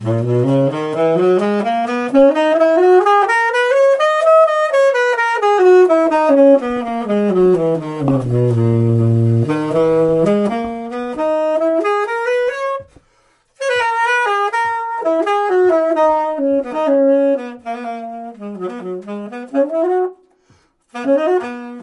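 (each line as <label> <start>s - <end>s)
A saxophone plays a simple melody. 0.0s - 21.8s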